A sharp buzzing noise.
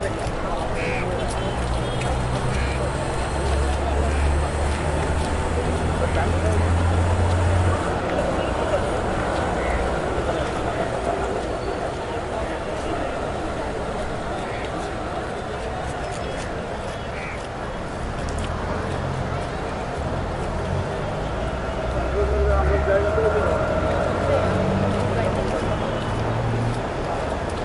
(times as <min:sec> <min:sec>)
0:00.8 0:01.4